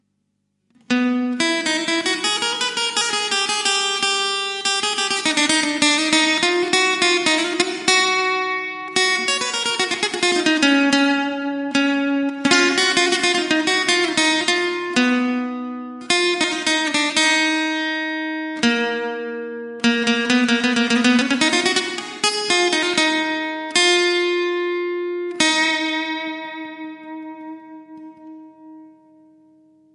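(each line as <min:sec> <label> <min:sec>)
0:00.8 Continuous acoustic guitar playing with flamenco flair. 0:27.7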